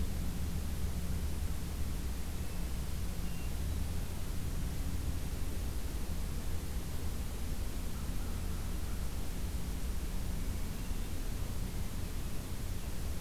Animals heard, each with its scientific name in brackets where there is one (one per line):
Hermit Thrush (Catharus guttatus)
American Crow (Corvus brachyrhynchos)